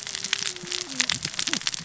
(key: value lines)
label: biophony, cascading saw
recorder: SoundTrap 600 or HydroMoth